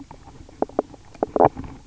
{"label": "biophony, knock croak", "recorder": "SoundTrap 300"}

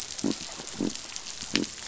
{"label": "biophony", "recorder": "SoundTrap 500"}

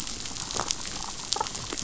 {"label": "biophony, damselfish", "recorder": "SoundTrap 500"}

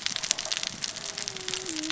{"label": "biophony, cascading saw", "recorder": "SoundTrap 600 or HydroMoth"}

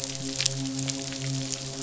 {"label": "biophony, midshipman", "recorder": "SoundTrap 500"}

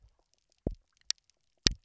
{"label": "biophony, double pulse", "recorder": "SoundTrap 300"}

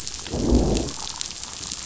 {"label": "biophony, growl", "recorder": "SoundTrap 500"}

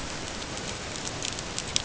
{"label": "ambient", "recorder": "HydroMoth"}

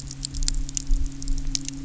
{"label": "anthrophony, boat engine", "recorder": "SoundTrap 300"}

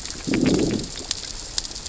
{"label": "biophony, growl", "recorder": "SoundTrap 600 or HydroMoth"}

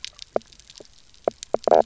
{"label": "biophony, knock croak", "recorder": "SoundTrap 300"}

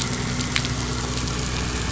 {"label": "anthrophony, boat engine", "recorder": "SoundTrap 500"}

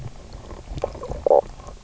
{"label": "biophony, knock croak", "recorder": "SoundTrap 300"}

